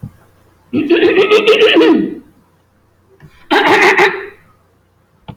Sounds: Throat clearing